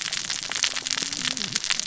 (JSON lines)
{"label": "biophony, cascading saw", "recorder": "SoundTrap 600 or HydroMoth"}